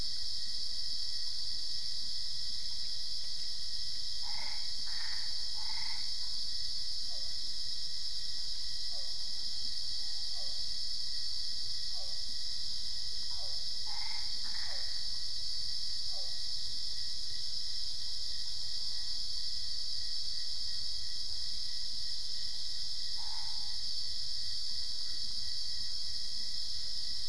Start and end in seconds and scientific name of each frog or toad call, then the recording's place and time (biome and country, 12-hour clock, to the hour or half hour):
4.2	6.2	Boana albopunctata
6.9	16.5	Physalaemus cuvieri
13.8	15.1	Boana albopunctata
23.1	23.8	Boana albopunctata
Cerrado, Brazil, ~11pm